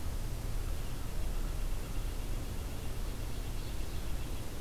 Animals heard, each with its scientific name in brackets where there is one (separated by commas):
Red-breasted Nuthatch (Sitta canadensis)